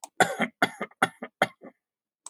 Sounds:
Cough